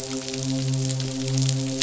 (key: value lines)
label: biophony, midshipman
recorder: SoundTrap 500